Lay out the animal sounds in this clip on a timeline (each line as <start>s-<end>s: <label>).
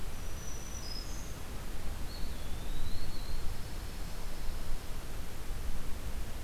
0.0s-1.4s: Black-throated Green Warbler (Setophaga virens)
2.0s-3.4s: Eastern Wood-Pewee (Contopus virens)
3.5s-5.0s: Pine Warbler (Setophaga pinus)